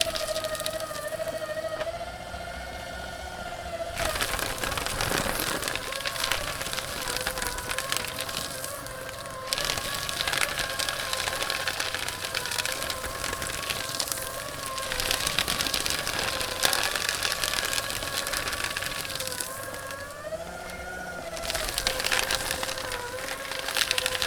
Are there moving parts to this device?
yes